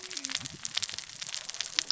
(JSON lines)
{"label": "biophony, cascading saw", "recorder": "SoundTrap 600 or HydroMoth"}